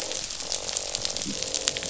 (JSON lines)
{"label": "biophony, croak", "recorder": "SoundTrap 500"}